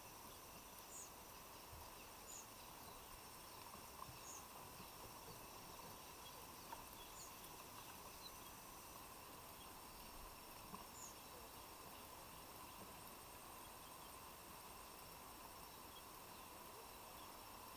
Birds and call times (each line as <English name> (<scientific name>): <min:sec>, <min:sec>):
White-eyed Slaty-Flycatcher (Melaenornis fischeri): 0:04.1